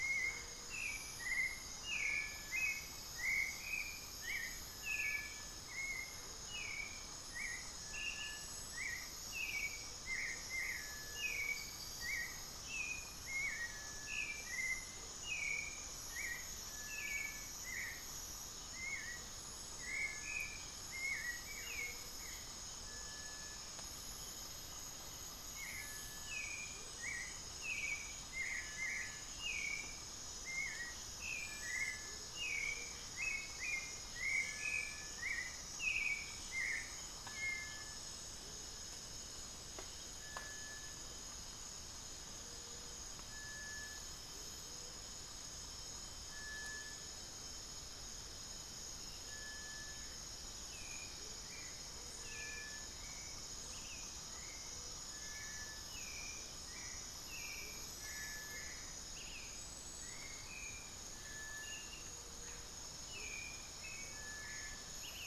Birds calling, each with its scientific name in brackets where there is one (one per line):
Rufous-capped Antthrush (Formicarius colma)
Amazonian Motmot (Momotus momota)
Hauxwell's Thrush (Turdus hauxwelli)
Gray-fronted Dove (Leptotila rufaxilla)
unidentified bird